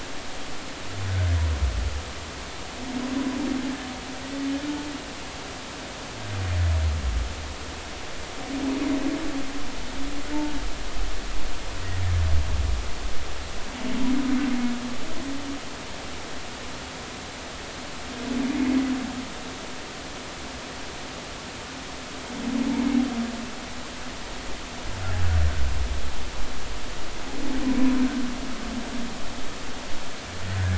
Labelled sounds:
1.1	1.4	humpback whale, 1.4 to 1.8 kHz

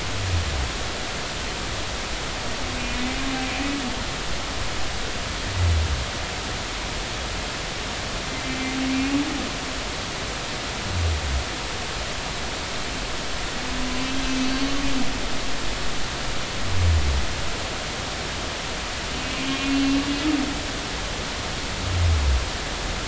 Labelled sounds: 14.5	14.8	humpback whale, 4.4 to 4.6 kHz
19.1	20.1	humpback whale, 2.7 to 3.3 kHz

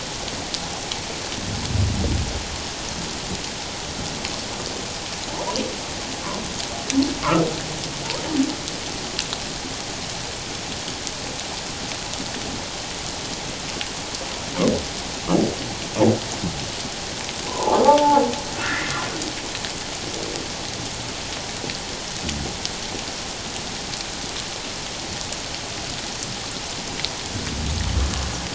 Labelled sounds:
17.4	19.0	humpback whale, 0.78 to 2.2 kHz

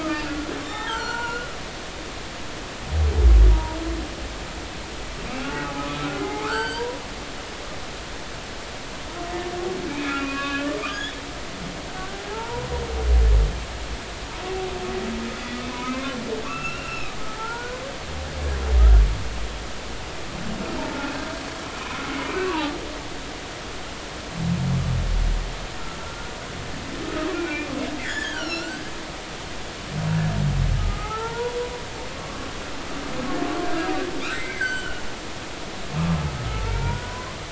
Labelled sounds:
0.0	1.5	humpback whale, 0.80 to 7.4 kHz
3.5	3.8	humpback whale, 0.90 to 0.99 kHz
5.4	7.0	humpback whale, 0.80 to 4.8 kHz
9.9	11.2	humpback whale, 1.1 to 3.6 kHz
12.0	12.7	humpback whale, 0.80 to 1.6 kHz
15.9	17.1	humpback whale, 0.99 to 2.9 kHz
17.4	17.8	humpback whale, 0.83 to 1.6 kHz
21.7	22.0	humpback whale, 2.2 to 2.6 kHz
22.4	22.7	humpback whale, 0.80 to 1.2 kHz
26.0	26.3	humpback whale, 1.3 to 1.5 kHz
27.0	27.7	humpback whale, 1.2 to 2.5 kHz
28.0	28.8	humpback whale, 1.3 to 5.9 kHz
30.8	31.5	humpback whale, 0.80 to 1.5 kHz
32.1	32.5	humpback whale, 1.1 to 1.2 kHz
33.6	34.0	humpback whale, 1.1 to 1.7 kHz
34.3	35.0	humpback whale, 1.3 to 7.8 kHz
36.5	37.3	humpback whale, 0.86 to 2.4 kHz

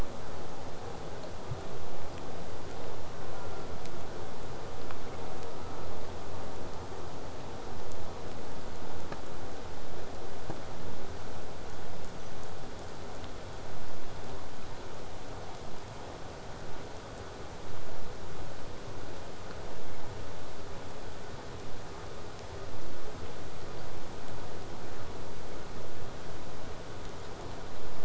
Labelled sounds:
3.3	3.8	killer whale, southern resident, J pod, call S04, 0.31 to 1.5 kHz

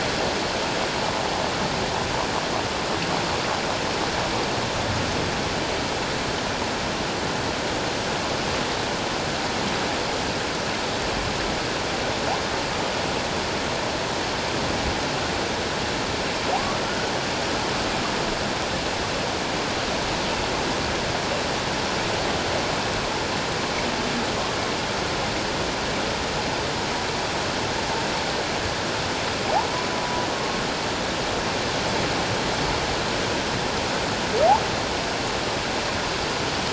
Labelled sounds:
16.5	17.1	humpback whale, 0.91 to 1.6 kHz

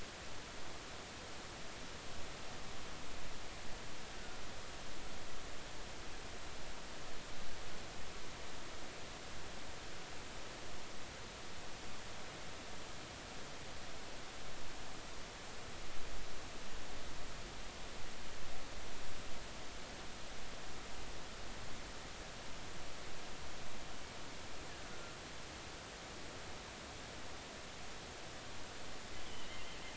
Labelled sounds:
4.1	4.4	killer whale, offshore, 1.4 to 1.6 kHz
24.9	25.1	killer whale, offshore, 1.3 to 1.5 kHz
29.2	29.5	killer whale, offshore, 2.8 to 3.5 kHz

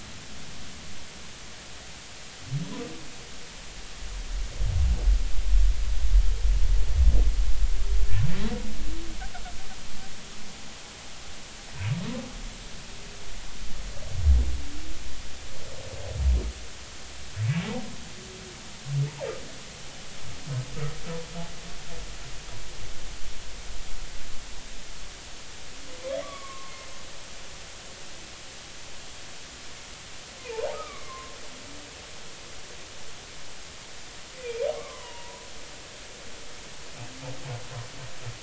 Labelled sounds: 26.2	26.7	humpback whale, 1.0 to 2.3 kHz
30.4	31.4	humpback whale, 0.83 to 2.4 kHz
34.4	35.5	humpback whale, 0.90 to 3.1 kHz

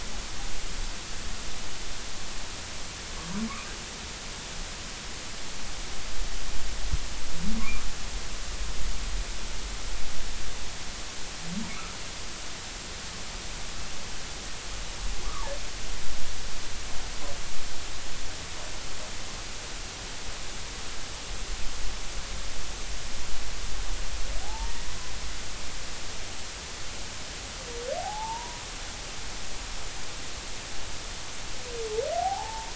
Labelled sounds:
11.7	11.9	humpback whale, 1.1 to 1.4 kHz
24.4	24.7	humpback whale, 0.80 to 0.96 kHz
28.0	28.6	humpback whale, 0.80 to 1.2 kHz
32.1	32.7	humpback whale, 0.80 to 1.0 kHz

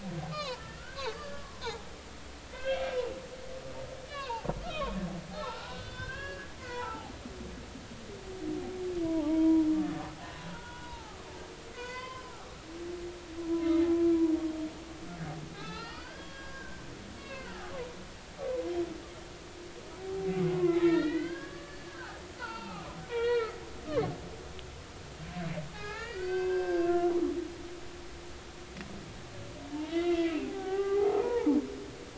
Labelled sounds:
0.3	1.6	humpback whale, 0.86 to 5.5 kHz
2.5	3.0	humpback whale, 1.5 to 4.3 kHz
4.1	7.1	humpback whale, 0.80 to 4.7 kHz
9.0	9.7	humpback whale, 0.83 to 1.0 kHz
10.5	11.2	humpback whale, 0.80 to 1.6 kHz
11.7	12.3	humpback whale, 0.93 to 4.7 kHz
13.6	13.9	humpback whale, 2.0 to 2.2 kHz
15.5	16.9	humpback whale, 0.80 to 5.2 kHz
17.2	18.5	humpback whale, 0.93 to 2.8 kHz
20.3	23.6	humpback whale, 0.80 to 4.6 kHz
25.7	27.1	humpback whale, 0.80 to 5.3 kHz
29.9	31.6	humpback whale, 0.80 to 2.8 kHz

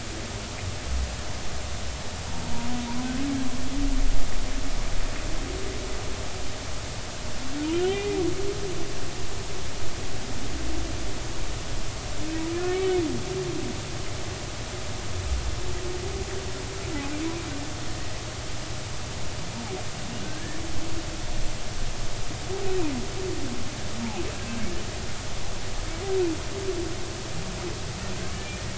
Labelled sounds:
7.9	8.2	humpback whale, 2.3 to 2.5 kHz
20.2	20.6	humpback whale, 1.5 to 1.9 kHz
24.4	24.6	humpback whale, 1.5 to 1.7 kHz

